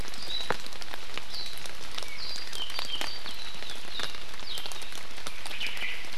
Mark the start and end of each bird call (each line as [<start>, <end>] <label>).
[2.04, 3.23] Apapane (Himatione sanguinea)
[5.54, 6.04] Omao (Myadestes obscurus)